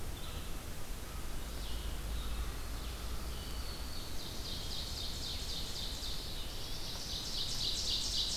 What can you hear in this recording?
Red-eyed Vireo, Black-throated Green Warbler, Ovenbird, Black-throated Blue Warbler